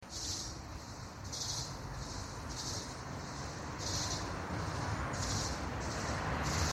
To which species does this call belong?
Gymnotympana varicolor